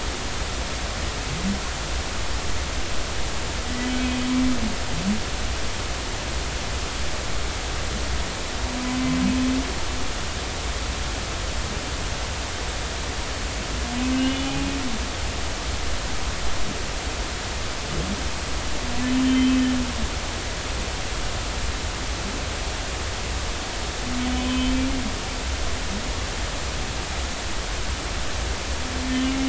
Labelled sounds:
3.6	3.9	humpback whale, 1.9 to 2.0 kHz
14.1	14.7	humpback whale, 0.80 to 3.0 kHz
19.1	19.6	humpback whale, 3.0 to 3.2 kHz
24.3	24.8	humpback whale, 2.9 to 3.1 kHz

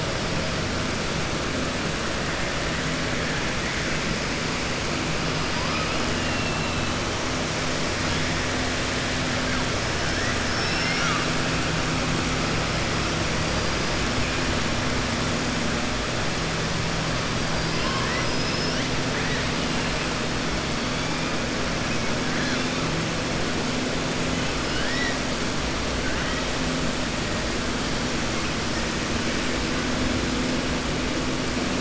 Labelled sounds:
10.4	11.2	killer whale, southern resident, 1.2 to 6.3 kHz
17.5	18.8	killer whale, southern resident, 0.99 to 6.1 kHz
24.6	25.2	killer whale, southern resident, 1.5 to 5.8 kHz

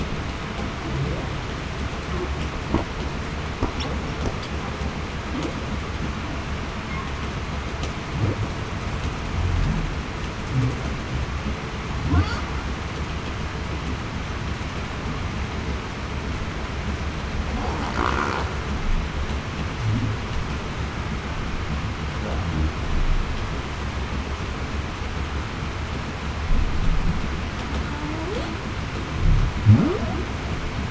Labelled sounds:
28.0	28.4	humpback whale, 0.28 to 0.58 kHz

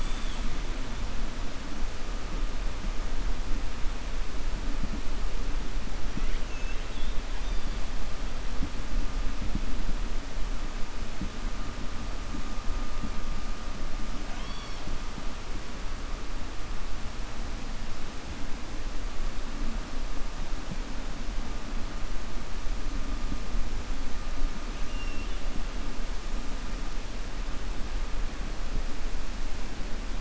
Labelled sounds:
6.1	7.2	killer whale, 1.2 to 4.0 kHz
14.2	14.9	killer whale, 0.71 to 5.7 kHz
24.8	25.4	killer whale, 2.0 to 3.5 kHz

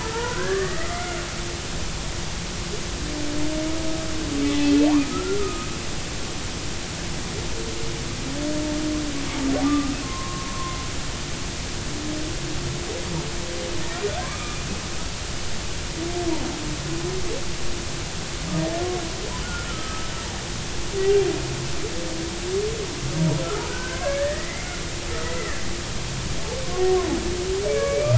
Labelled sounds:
0.0	1.2	humpback whale, 0.80 to 2.2 kHz
4.4	5.7	humpback whale, 0.90 to 3.5 kHz
9.6	10.8	humpback whale, 0.99 to 1.3 kHz
14.2	14.6	humpback whale, 0.99 to 2.5 kHz
19.4	20.1	humpback whale, 1.2 to 1.5 kHz
23.4	24.8	humpback whale, 0.99 to 2.2 kHz
25.2	25.6	humpback whale, 1.7 to 2.1 kHz
27.7	28.1	humpback whale, 2.2 to 2.5 kHz

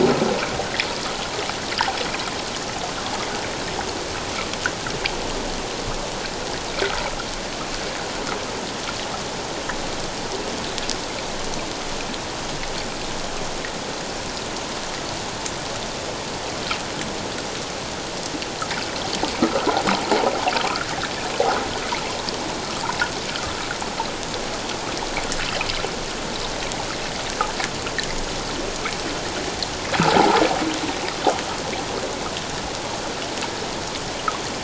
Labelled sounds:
20.7	20.9	water noise, 1.2 to 1.9 kHz
30.2	30.4	water noise, 0.78 to 1.0 kHz

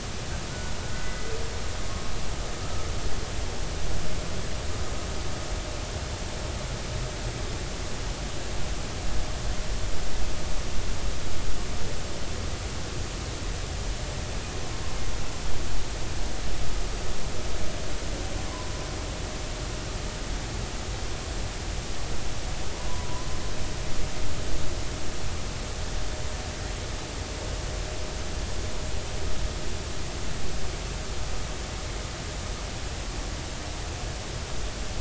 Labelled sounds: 0.5	1.3	humpback whale, 1.4 to 2.0 kHz
18.5	18.7	humpback whale, 0.96 to 1.1 kHz
22.9	23.3	humpback whale, 0.93 to 1.1 kHz

